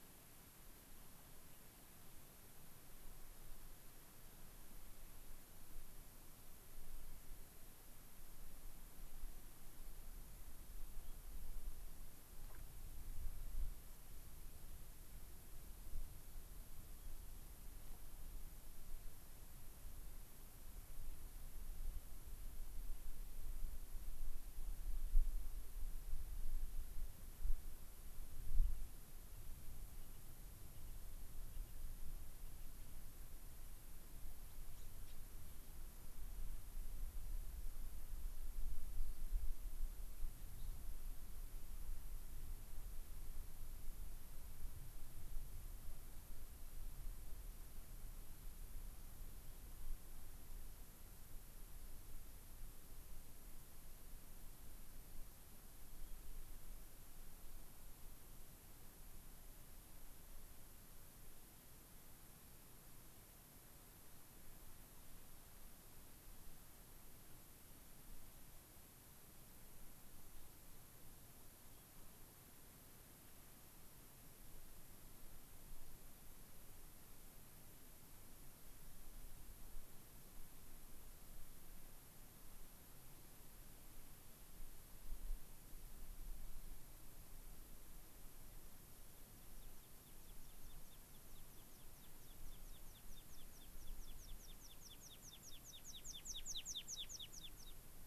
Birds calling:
American Pipit (Anthus rubescens)

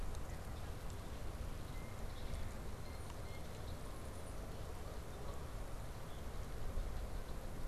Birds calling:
Red-winged Blackbird (Agelaius phoeniceus)
Blue Jay (Cyanocitta cristata)
Canada Goose (Branta canadensis)

